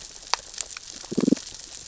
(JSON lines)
{"label": "biophony, damselfish", "recorder": "SoundTrap 600 or HydroMoth"}